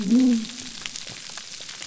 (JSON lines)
{"label": "biophony", "recorder": "SoundTrap 300"}